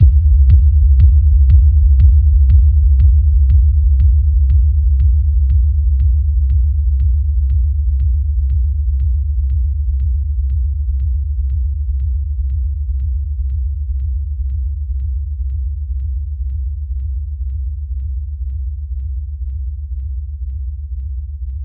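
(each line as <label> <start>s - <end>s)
Drum beats follow a repeated pattern and gradually fade away. 0.0s - 21.6s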